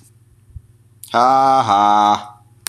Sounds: Laughter